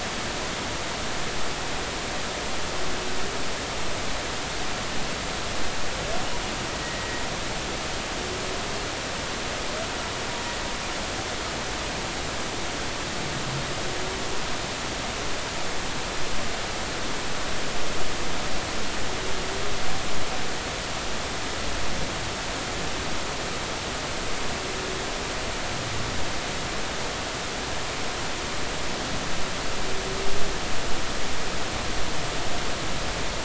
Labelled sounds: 6.8	7.2	humpback whale, 1.9 to 2.0 kHz

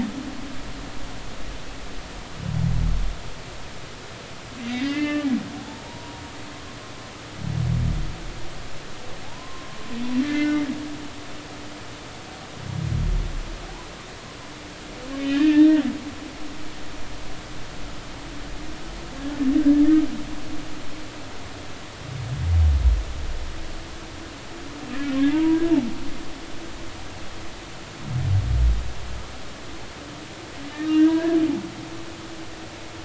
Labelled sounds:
4.7	5.3	humpback whale, 1.1 to 4.9 kHz
5.6	6.2	humpback whale, 0.80 to 1.0 kHz
9.2	10.7	humpback whale, 0.80 to 2.1 kHz
15.2	15.8	humpback whale, 1.6 to 3.8 kHz
19.6	19.8	humpback whale, 1.5 to 1.8 kHz
25.3	25.7	humpback whale, 0.86 to 1.7 kHz
30.9	31.4	humpback whale, 0.90 to 3.0 kHz

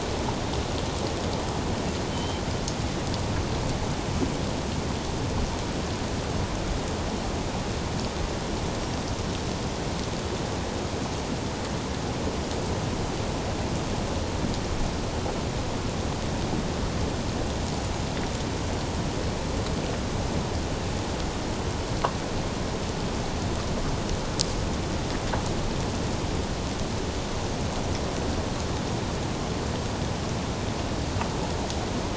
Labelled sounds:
2.1	2.4	Pacific white-sided dolphin, 3.0 to 3.2 kHz

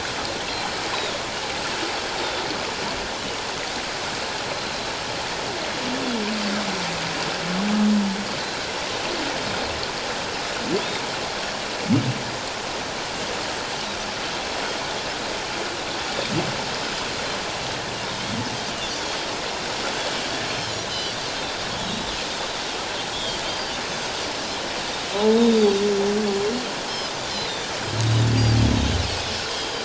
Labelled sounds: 4.4	4.9	Pacific white-sided dolphin, 3.9 to 4.1 kHz
10.8	11.0	Pacific white-sided dolphin, 3.2 to 3.8 kHz
16.7	17.1	Pacific white-sided dolphin, 5.0 to 5.2 kHz
20.4	21.2	Pacific white-sided dolphin, 2.8 to 4.4 kHz
21.8	22.1	Pacific white-sided dolphin, 3.7 to 4.0 kHz
23.1	24.2	Pacific white-sided dolphin, 3.0 to 6.5 kHz
25.3	25.6	Pacific white-sided dolphin, 3.5 to 3.8 kHz
29.0	29.8	Pacific white-sided dolphin, 2.5 to 5.0 kHz

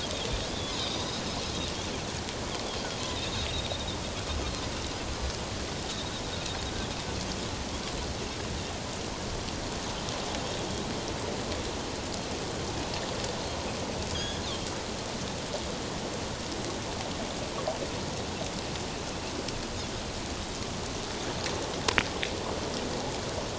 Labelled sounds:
0.7	1.0	Pacific white-sided dolphin, 3.5 to 4.0 kHz
3.0	3.5	Pacific white-sided dolphin, 3.5 to 4.2 kHz
14.1	14.4	Pacific white-sided dolphin, 3.2 to 3.6 kHz

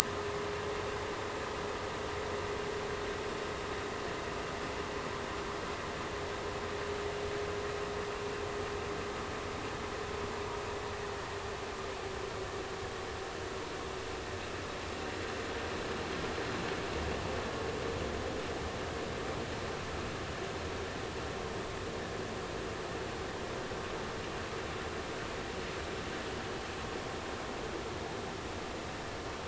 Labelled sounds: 0.0	0.3	vessel noise, 0.96 to 1.3 kHz

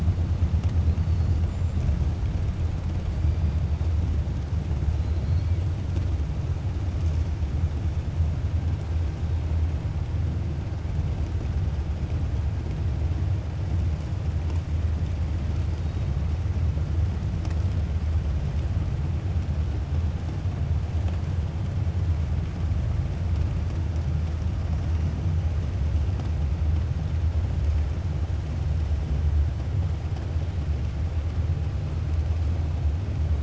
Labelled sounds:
4.9	5.5	killer whale, 3.3 to 4.9 kHz

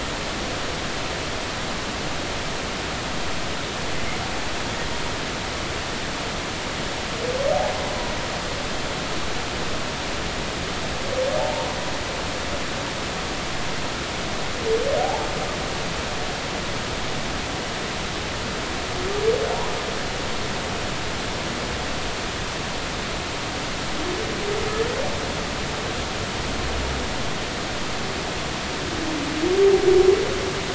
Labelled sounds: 11.4	11.8	humpback whale, 0.80 to 1.0 kHz
15.0	15.3	humpback whale, 0.80 to 0.99 kHz

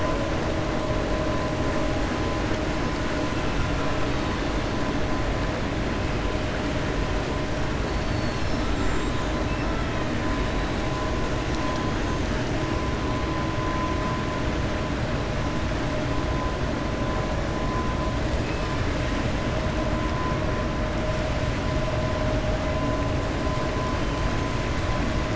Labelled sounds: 7.9	9.3	killer whale, 4.1 to 8.0 kHz

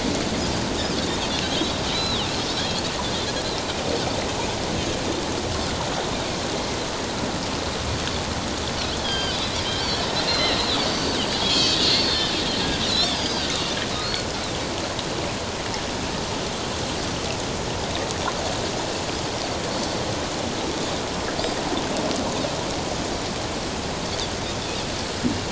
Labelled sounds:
1.9	2.3	Pacific white-sided dolphin, 2.7 to 4.1 kHz
9.0	9.4	Pacific white-sided dolphin, 1.5 to 5.0 kHz
10.1	12.3	Pacific white-sided dolphin, 1.8 to 7.2 kHz
12.9	13.5	Pacific white-sided dolphin, 3.8 to 6.5 kHz

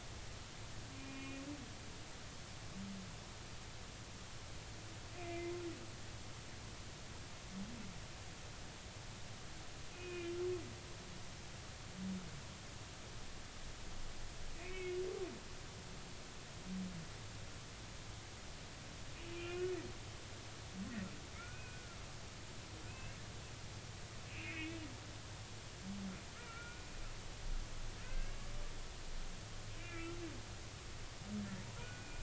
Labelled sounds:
1.0	1.4	humpback whale, 2.4 to 2.8 kHz
5.2	5.5	humpback whale, 2.0 to 2.5 kHz
9.9	10.3	humpback whale, 2.4 to 2.6 kHz
14.5	15.0	humpback whale, 2.0 to 3.0 kHz
19.3	19.7	humpback whale, 2.4 to 3.0 kHz
21.3	22.0	humpback whale, 1.2 to 2.6 kHz
22.9	23.2	humpback whale, 2.4 to 2.8 kHz
24.3	24.8	humpback whale, 2.1 to 2.9 kHz
26.4	26.9	humpback whale, 1.3 to 2.5 kHz
28.0	28.4	humpback whale, 1.5 to 1.7 kHz
29.8	30.2	humpback whale, 1.3 to 2.5 kHz
31.8	32.2	humpback whale, 1.3 to 2.5 kHz

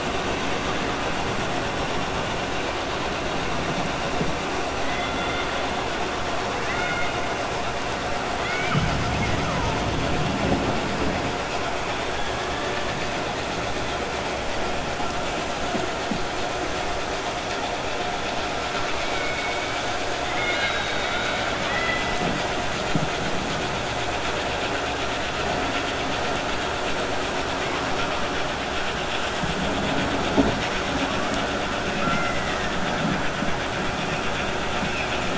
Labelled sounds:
6.6	7.1	killer whale, 1.2 to 3.7 kHz

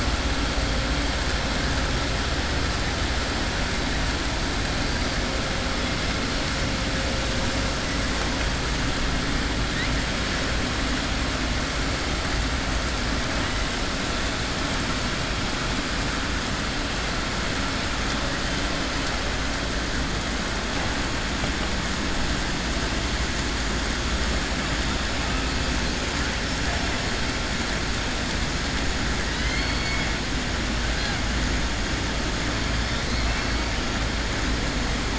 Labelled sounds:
29.3	30.1	killer whale, southern resident, 2.0 to 4.5 kHz

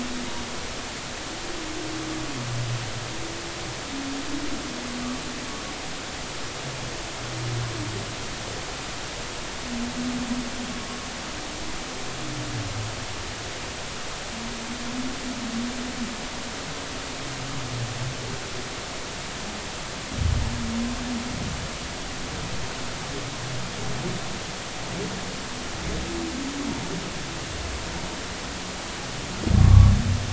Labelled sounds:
29.6	29.9	humpback whale, 1.0 to 1.2 kHz

